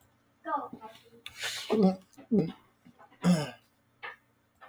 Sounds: Throat clearing